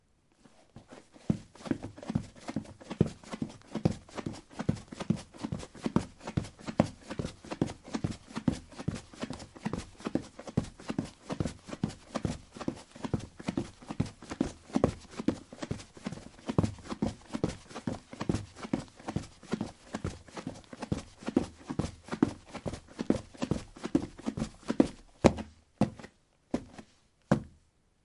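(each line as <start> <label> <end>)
0.0 Footsteps repeating in the distance. 28.0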